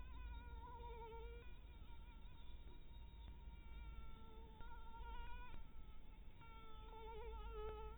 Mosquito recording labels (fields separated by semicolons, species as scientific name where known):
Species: mosquito; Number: one; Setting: cup